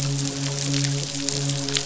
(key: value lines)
label: biophony, midshipman
recorder: SoundTrap 500